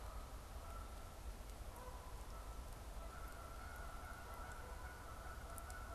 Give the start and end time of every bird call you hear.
[0.00, 5.94] Canada Goose (Branta canadensis)

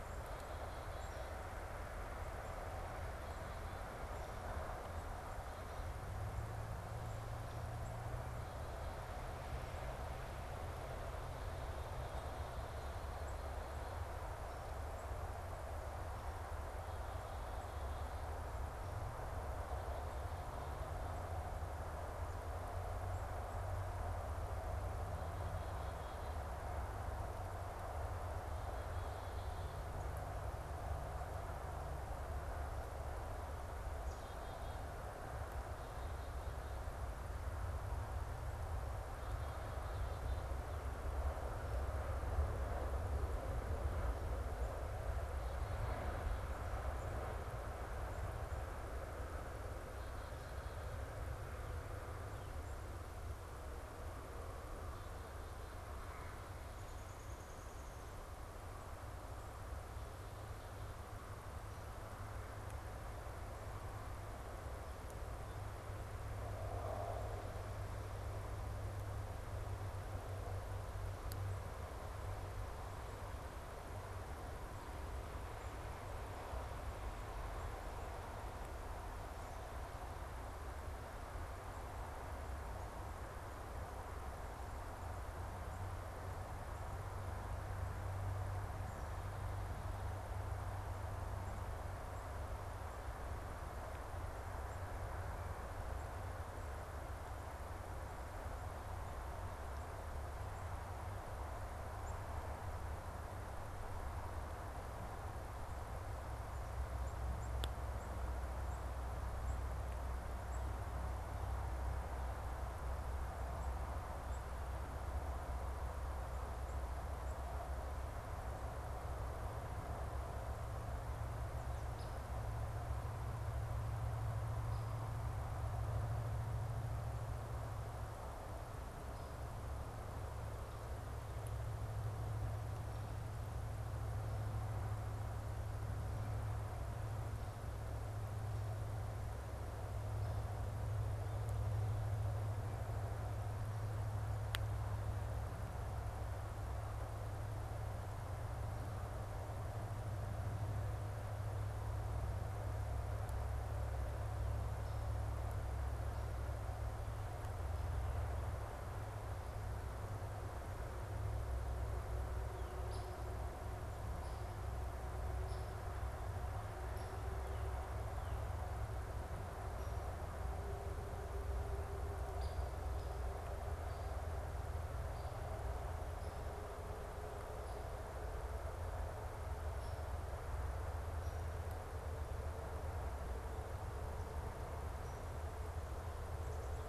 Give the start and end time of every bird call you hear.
[0.00, 41.40] Black-capped Chickadee (Poecile atricapillus)
[56.40, 58.20] Downy Woodpecker (Dryobates pubescens)
[101.70, 117.50] Tufted Titmouse (Baeolophus bicolor)

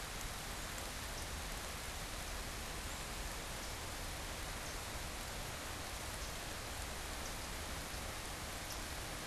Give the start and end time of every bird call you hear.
[0.00, 8.90] unidentified bird

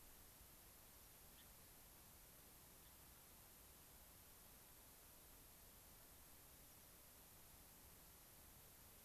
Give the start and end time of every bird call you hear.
[1.32, 1.52] Gray-crowned Rosy-Finch (Leucosticte tephrocotis)
[2.82, 2.92] Gray-crowned Rosy-Finch (Leucosticte tephrocotis)
[6.62, 6.92] American Pipit (Anthus rubescens)

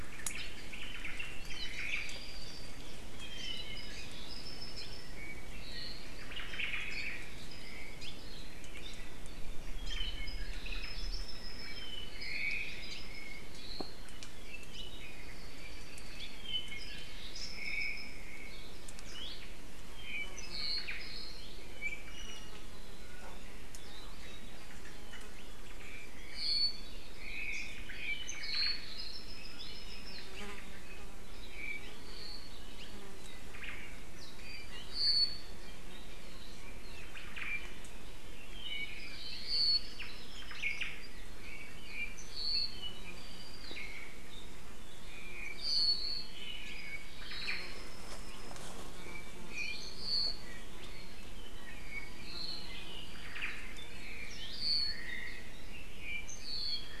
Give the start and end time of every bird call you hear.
[0.00, 2.30] Omao (Myadestes obscurus)
[1.40, 1.90] Hawaii Creeper (Loxops mana)
[1.80, 6.20] Apapane (Himatione sanguinea)
[6.10, 7.50] Omao (Myadestes obscurus)
[7.90, 8.20] Apapane (Himatione sanguinea)
[9.70, 12.10] Apapane (Himatione sanguinea)
[12.10, 13.00] Omao (Myadestes obscurus)
[12.80, 18.30] Apapane (Himatione sanguinea)
[17.40, 18.30] Omao (Myadestes obscurus)
[19.00, 19.50] Hawaii Creeper (Loxops mana)
[19.90, 21.60] Apapane (Himatione sanguinea)
[20.40, 21.20] Omao (Myadestes obscurus)
[21.70, 22.60] Iiwi (Drepanis coccinea)
[25.70, 30.40] Apapane (Himatione sanguinea)
[28.10, 29.00] Omao (Myadestes obscurus)
[31.40, 32.70] Apapane (Himatione sanguinea)
[33.40, 34.00] Omao (Myadestes obscurus)
[34.30, 35.60] Apapane (Himatione sanguinea)
[37.00, 37.60] Omao (Myadestes obscurus)
[38.40, 40.10] Apapane (Himatione sanguinea)
[40.30, 41.00] Omao (Myadestes obscurus)
[41.40, 43.00] Apapane (Himatione sanguinea)
[44.80, 50.60] Apapane (Himatione sanguinea)
[47.10, 47.80] Omao (Myadestes obscurus)
[51.30, 52.90] Apapane (Himatione sanguinea)
[53.10, 53.70] Omao (Myadestes obscurus)
[53.70, 55.30] Apapane (Himatione sanguinea)
[54.80, 55.60] Omao (Myadestes obscurus)
[55.60, 57.00] Apapane (Himatione sanguinea)

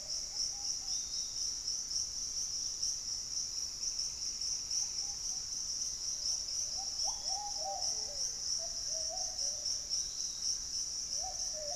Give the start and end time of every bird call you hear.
[0.00, 1.62] Piratic Flycatcher (Legatus leucophaius)
[0.00, 5.62] Ruddy Pigeon (Patagioenas subvinacea)
[3.52, 8.22] Pygmy Antwren (Myrmotherula brachyura)
[6.72, 11.75] Piratic Flycatcher (Legatus leucophaius)
[7.02, 11.75] Black-faced Antthrush (Formicarius analis)
[11.12, 11.75] Buff-throated Woodcreeper (Xiphorhynchus guttatus)

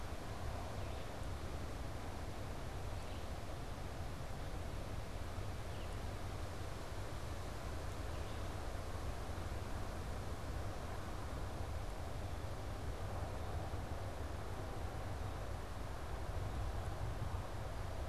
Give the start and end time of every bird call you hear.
[0.00, 3.34] Red-eyed Vireo (Vireo olivaceus)

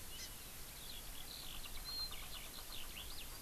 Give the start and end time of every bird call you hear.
[0.00, 3.41] Eurasian Skylark (Alauda arvensis)
[0.16, 0.26] Hawaii Amakihi (Chlorodrepanis virens)

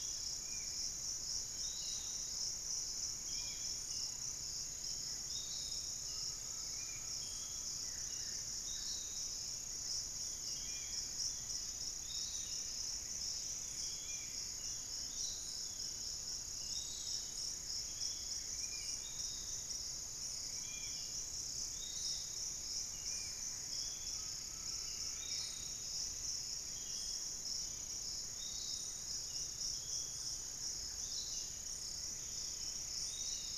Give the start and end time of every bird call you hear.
[0.00, 33.57] Piratic Flycatcher (Legatus leucophaius)
[0.00, 33.57] Spot-winged Antshrike (Pygiptila stellaris)
[6.00, 7.60] Undulated Tinamou (Crypturellus undulatus)
[7.70, 8.90] Black-faced Antthrush (Formicarius analis)
[10.10, 18.90] Long-winged Antwren (Myrmotherula longipennis)
[12.20, 13.30] unidentified bird
[24.10, 25.70] Undulated Tinamou (Crypturellus undulatus)
[29.10, 33.57] Long-winged Antwren (Myrmotherula longipennis)
[30.00, 31.10] Thrush-like Wren (Campylorhynchus turdinus)
[31.90, 33.57] Pygmy Antwren (Myrmotherula brachyura)

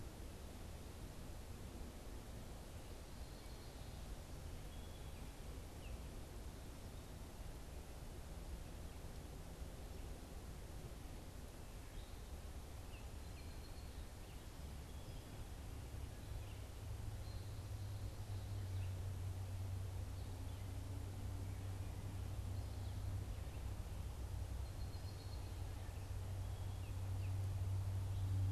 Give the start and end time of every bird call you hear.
[3.05, 5.45] Song Sparrow (Melospiza melodia)
[12.95, 15.35] Song Sparrow (Melospiza melodia)
[24.25, 27.05] Song Sparrow (Melospiza melodia)

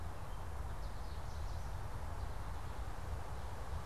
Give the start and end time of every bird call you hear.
[0.23, 1.93] American Goldfinch (Spinus tristis)

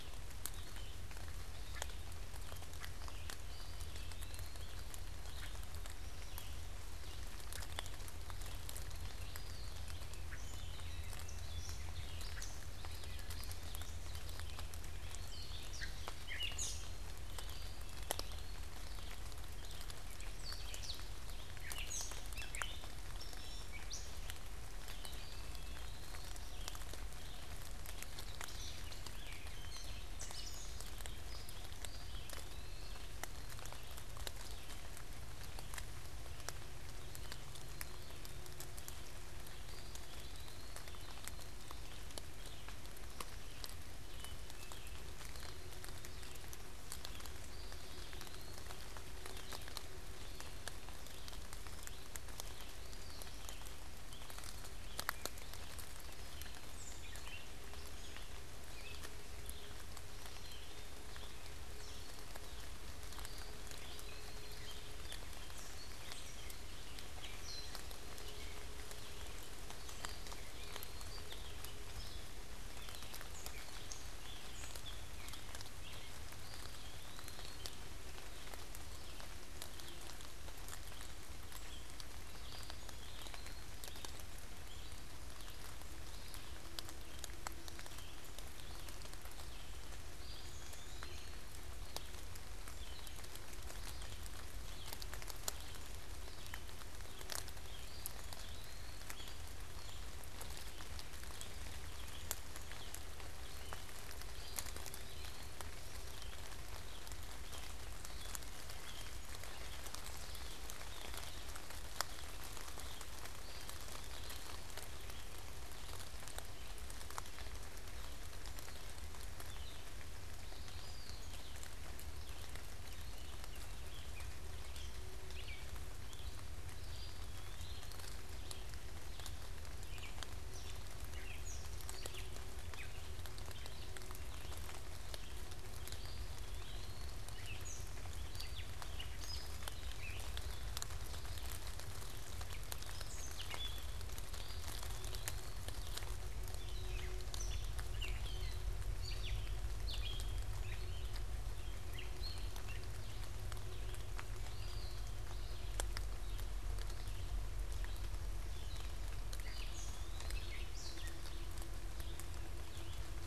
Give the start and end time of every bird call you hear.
[0.00, 163.26] Red-eyed Vireo (Vireo olivaceus)
[3.27, 4.67] Black-capped Chickadee (Poecile atricapillus)
[3.27, 4.87] Eastern Wood-Pewee (Contopus virens)
[8.96, 9.87] Eastern Wood-Pewee (Contopus virens)
[10.16, 24.66] Gray Catbird (Dumetella carolinensis)
[10.37, 11.46] Black-capped Chickadee (Poecile atricapillus)
[17.27, 18.86] Eastern Wood-Pewee (Contopus virens)
[24.86, 26.46] Eastern Wood-Pewee (Contopus virens)
[28.07, 31.57] Gray Catbird (Dumetella carolinensis)
[31.66, 33.27] Eastern Wood-Pewee (Contopus virens)
[37.56, 38.66] Black-capped Chickadee (Poecile atricapillus)
[39.56, 41.06] Eastern Wood-Pewee (Contopus virens)
[43.97, 44.97] Black-capped Chickadee (Poecile atricapillus)
[47.27, 48.77] Eastern Wood-Pewee (Contopus virens)
[52.56, 53.37] Eastern Wood-Pewee (Contopus virens)
[56.16, 57.66] unidentified bird
[60.06, 61.06] Black-capped Chickadee (Poecile atricapillus)
[63.16, 64.56] Eastern Wood-Pewee (Contopus virens)
[64.47, 76.27] Gray Catbird (Dumetella carolinensis)
[69.77, 71.27] Eastern Wood-Pewee (Contopus virens)
[76.36, 77.77] Eastern Wood-Pewee (Contopus virens)
[82.27, 83.77] Eastern Wood-Pewee (Contopus virens)
[90.06, 91.47] Eastern Wood-Pewee (Contopus virens)
[90.36, 91.67] unidentified bird
[97.67, 99.27] Eastern Wood-Pewee (Contopus virens)
[104.27, 105.56] Eastern Wood-Pewee (Contopus virens)
[113.27, 114.86] Eastern Wood-Pewee (Contopus virens)
[120.47, 121.36] Eastern Wood-Pewee (Contopus virens)
[123.77, 125.77] Gray Catbird (Dumetella carolinensis)
[126.77, 128.16] Eastern Wood-Pewee (Contopus virens)
[129.56, 133.26] Gray Catbird (Dumetella carolinensis)
[135.76, 137.26] Eastern Wood-Pewee (Contopus virens)
[137.06, 140.56] Gray Catbird (Dumetella carolinensis)
[142.56, 143.97] Gray Catbird (Dumetella carolinensis)
[144.26, 145.87] Eastern Wood-Pewee (Contopus virens)
[146.37, 153.06] Gray Catbird (Dumetella carolinensis)
[154.37, 154.97] Eastern Wood-Pewee (Contopus virens)
[158.76, 161.47] Gray Catbird (Dumetella carolinensis)
[159.26, 160.76] Eastern Wood-Pewee (Contopus virens)

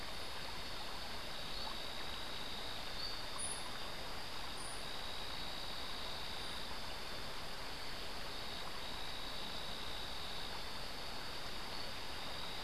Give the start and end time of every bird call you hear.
[3.27, 6.87] White-eared Ground-Sparrow (Melozone leucotis)

